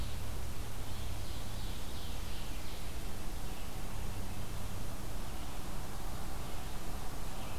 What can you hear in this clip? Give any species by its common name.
Ovenbird